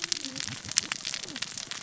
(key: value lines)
label: biophony, cascading saw
recorder: SoundTrap 600 or HydroMoth